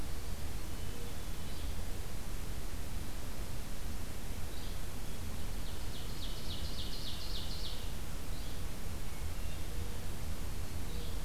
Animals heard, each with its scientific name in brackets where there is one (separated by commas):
Black-throated Green Warbler (Setophaga virens), Ovenbird (Seiurus aurocapilla), Hermit Thrush (Catharus guttatus), Yellow-bellied Flycatcher (Empidonax flaviventris)